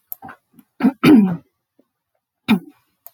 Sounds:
Throat clearing